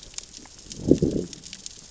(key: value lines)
label: biophony, growl
recorder: SoundTrap 600 or HydroMoth